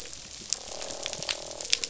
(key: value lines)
label: biophony, croak
recorder: SoundTrap 500